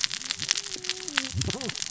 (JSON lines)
{"label": "biophony, cascading saw", "recorder": "SoundTrap 600 or HydroMoth"}